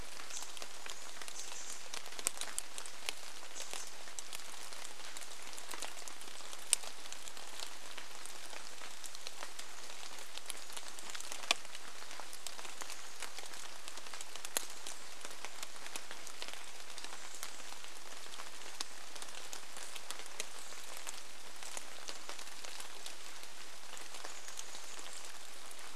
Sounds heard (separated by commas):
Chestnut-backed Chickadee call, rain